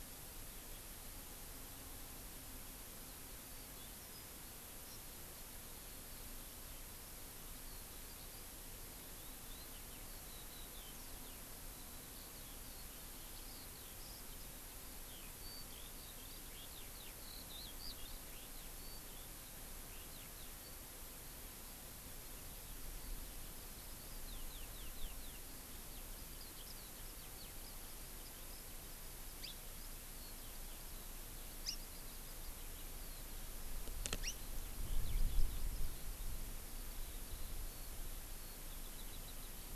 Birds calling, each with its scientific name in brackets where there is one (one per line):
Hawaii Amakihi (Chlorodrepanis virens)
Eurasian Skylark (Alauda arvensis)
Yellow-fronted Canary (Crithagra mozambica)